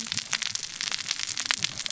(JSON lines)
{"label": "biophony, cascading saw", "recorder": "SoundTrap 600 or HydroMoth"}